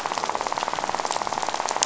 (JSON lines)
{"label": "biophony, rattle", "recorder": "SoundTrap 500"}